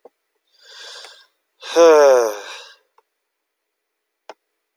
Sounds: Sigh